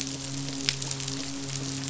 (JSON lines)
{"label": "biophony, midshipman", "recorder": "SoundTrap 500"}